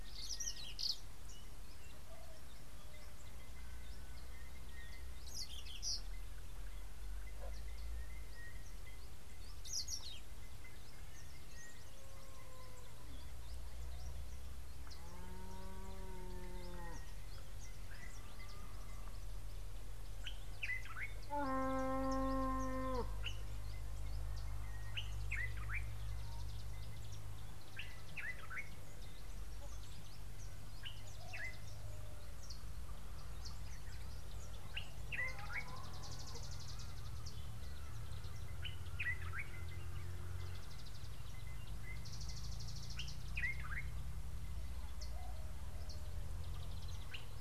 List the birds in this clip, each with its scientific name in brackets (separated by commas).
Common Bulbul (Pycnonotus barbatus), Mariqua Sunbird (Cinnyris mariquensis), Sulphur-breasted Bushshrike (Telophorus sulfureopectus)